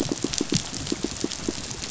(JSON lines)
{"label": "biophony, pulse", "recorder": "SoundTrap 500"}